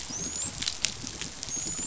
{"label": "biophony, dolphin", "recorder": "SoundTrap 500"}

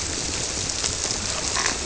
{"label": "biophony", "recorder": "SoundTrap 300"}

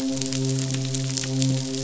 {"label": "biophony, midshipman", "recorder": "SoundTrap 500"}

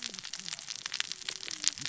{"label": "biophony, cascading saw", "recorder": "SoundTrap 600 or HydroMoth"}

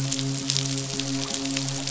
{"label": "biophony, midshipman", "recorder": "SoundTrap 500"}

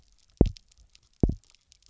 {"label": "biophony, double pulse", "recorder": "SoundTrap 300"}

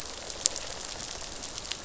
{"label": "biophony, rattle response", "recorder": "SoundTrap 500"}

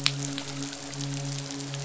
{"label": "biophony, midshipman", "recorder": "SoundTrap 500"}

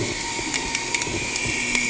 {"label": "anthrophony, boat engine", "recorder": "HydroMoth"}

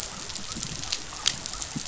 {"label": "biophony", "recorder": "SoundTrap 500"}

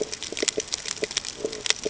{"label": "ambient", "recorder": "HydroMoth"}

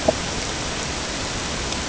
{"label": "ambient", "recorder": "HydroMoth"}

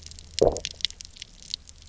{"label": "biophony, low growl", "recorder": "SoundTrap 300"}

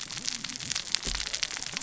{"label": "biophony, cascading saw", "recorder": "SoundTrap 600 or HydroMoth"}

